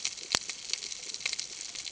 {"label": "ambient", "recorder": "HydroMoth"}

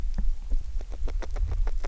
{"label": "biophony, grazing", "recorder": "SoundTrap 300"}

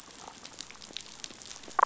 {"label": "biophony, damselfish", "recorder": "SoundTrap 500"}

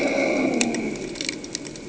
{"label": "anthrophony, boat engine", "recorder": "HydroMoth"}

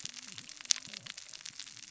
{"label": "biophony, cascading saw", "recorder": "SoundTrap 600 or HydroMoth"}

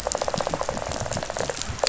{"label": "biophony, rattle", "recorder": "SoundTrap 500"}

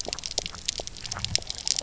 {"label": "biophony, pulse", "recorder": "SoundTrap 300"}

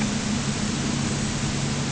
{"label": "anthrophony, boat engine", "recorder": "HydroMoth"}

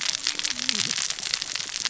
{"label": "biophony, cascading saw", "recorder": "SoundTrap 600 or HydroMoth"}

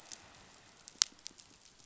{"label": "biophony, pulse", "recorder": "SoundTrap 500"}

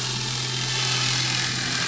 {"label": "anthrophony, boat engine", "recorder": "SoundTrap 500"}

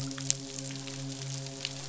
{"label": "biophony, midshipman", "recorder": "SoundTrap 500"}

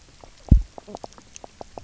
{"label": "biophony, knock croak", "recorder": "SoundTrap 300"}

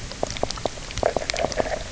{"label": "biophony, knock croak", "recorder": "SoundTrap 300"}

